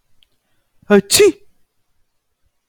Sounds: Sneeze